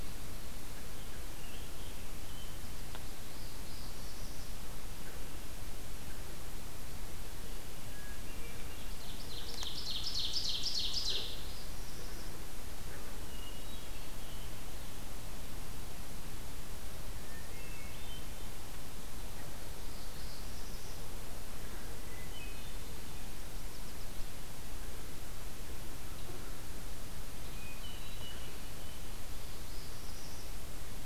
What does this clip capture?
Scarlet Tanager, Northern Parula, Hermit Thrush, Ovenbird, Yellow Warbler